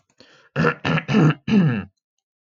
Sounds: Throat clearing